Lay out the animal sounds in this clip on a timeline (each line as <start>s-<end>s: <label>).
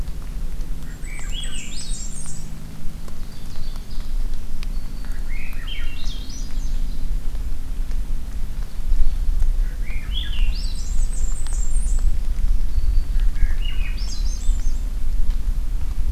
0.8s-2.3s: Swainson's Thrush (Catharus ustulatus)
0.8s-2.5s: Blackburnian Warbler (Setophaga fusca)
2.9s-4.3s: Ovenbird (Seiurus aurocapilla)
4.3s-5.3s: Black-throated Green Warbler (Setophaga virens)
5.0s-6.7s: Swainson's Thrush (Catharus ustulatus)
8.5s-9.3s: Ovenbird (Seiurus aurocapilla)
9.6s-11.1s: Swainson's Thrush (Catharus ustulatus)
10.5s-12.1s: Blackburnian Warbler (Setophaga fusca)
12.0s-13.2s: Black-throated Green Warbler (Setophaga virens)
13.1s-14.8s: Swainson's Thrush (Catharus ustulatus)